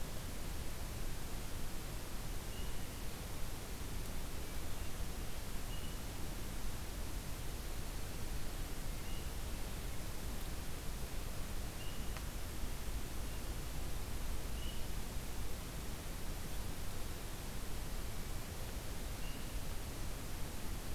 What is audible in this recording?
forest ambience